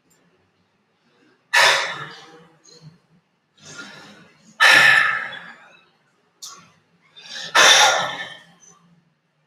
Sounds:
Sigh